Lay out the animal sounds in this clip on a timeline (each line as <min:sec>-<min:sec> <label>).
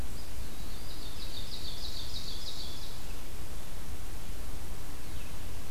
0:00.0-0:01.1 Eastern Wood-Pewee (Contopus virens)
0:00.8-0:03.1 Ovenbird (Seiurus aurocapilla)